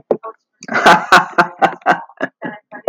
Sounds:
Laughter